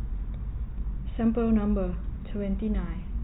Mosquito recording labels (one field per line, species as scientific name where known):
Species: no mosquito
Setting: cup